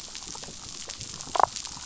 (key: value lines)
label: biophony, damselfish
recorder: SoundTrap 500